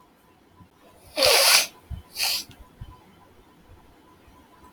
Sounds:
Sniff